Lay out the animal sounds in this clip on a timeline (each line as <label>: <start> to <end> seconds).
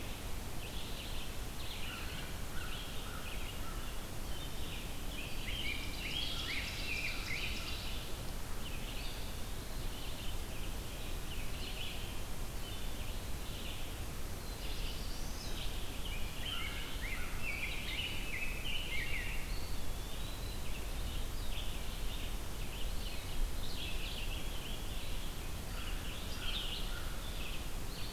Red-eyed Vireo (Vireo olivaceus): 0.0 to 28.1 seconds
American Crow (Corvus brachyrhynchos): 1.6 to 3.6 seconds
Rose-breasted Grosbeak (Pheucticus ludovicianus): 5.2 to 8.1 seconds
Ovenbird (Seiurus aurocapilla): 5.4 to 8.4 seconds
American Crow (Corvus brachyrhynchos): 6.3 to 7.9 seconds
Eastern Wood-Pewee (Contopus virens): 8.8 to 10.1 seconds
Black-throated Blue Warbler (Setophaga caerulescens): 14.2 to 15.7 seconds
Rose-breasted Grosbeak (Pheucticus ludovicianus): 16.0 to 19.7 seconds
Eastern Wood-Pewee (Contopus virens): 19.3 to 20.9 seconds
Eastern Wood-Pewee (Contopus virens): 22.7 to 23.8 seconds
American Crow (Corvus brachyrhynchos): 25.5 to 27.7 seconds